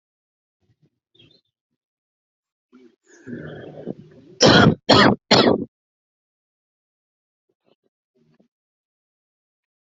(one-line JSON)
{"expert_labels": [{"quality": "good", "cough_type": "dry", "dyspnea": false, "wheezing": false, "stridor": false, "choking": false, "congestion": false, "nothing": true, "diagnosis": "upper respiratory tract infection", "severity": "mild"}], "age": 29, "gender": "male", "respiratory_condition": false, "fever_muscle_pain": false, "status": "symptomatic"}